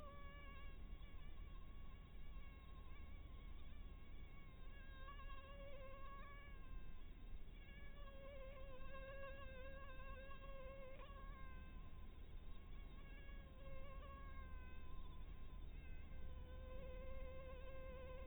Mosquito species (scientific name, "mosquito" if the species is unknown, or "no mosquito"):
Anopheles dirus